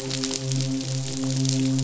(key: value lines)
label: biophony, midshipman
recorder: SoundTrap 500